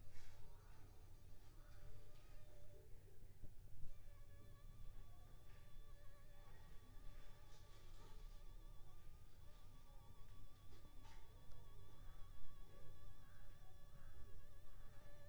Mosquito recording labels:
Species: Anopheles funestus s.l.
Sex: female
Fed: unfed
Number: one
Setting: cup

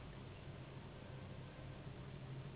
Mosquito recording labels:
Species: Anopheles gambiae s.s.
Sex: female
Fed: unfed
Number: one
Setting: insect culture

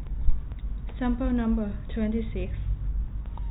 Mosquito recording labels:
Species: no mosquito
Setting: cup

